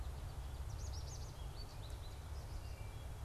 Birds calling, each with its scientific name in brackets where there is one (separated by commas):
American Goldfinch (Spinus tristis), Wood Thrush (Hylocichla mustelina)